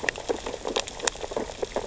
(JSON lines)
{"label": "biophony, sea urchins (Echinidae)", "recorder": "SoundTrap 600 or HydroMoth"}